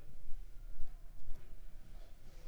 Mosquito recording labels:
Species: Anopheles funestus s.s.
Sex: female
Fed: unfed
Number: one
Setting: cup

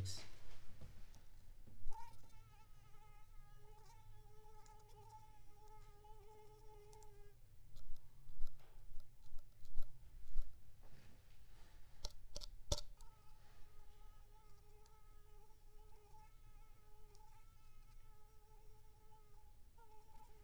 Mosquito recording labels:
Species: Anopheles squamosus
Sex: female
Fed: unfed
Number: one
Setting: cup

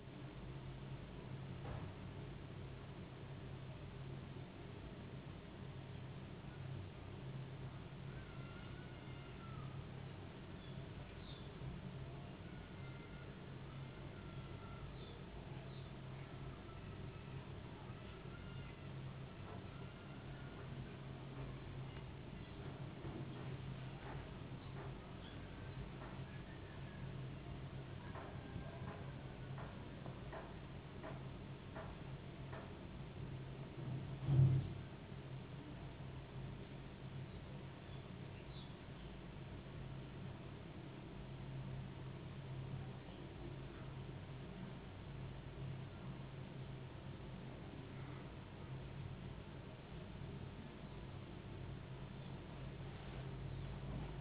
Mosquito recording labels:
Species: no mosquito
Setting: insect culture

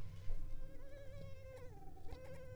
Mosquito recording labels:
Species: Culex pipiens complex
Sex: female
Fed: unfed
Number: one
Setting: cup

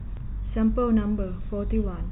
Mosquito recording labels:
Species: no mosquito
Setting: cup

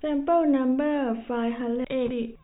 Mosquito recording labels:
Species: no mosquito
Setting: cup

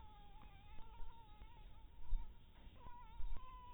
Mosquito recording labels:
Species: Anopheles harrisoni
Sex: female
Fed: blood-fed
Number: one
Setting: cup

